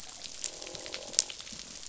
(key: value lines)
label: biophony, croak
recorder: SoundTrap 500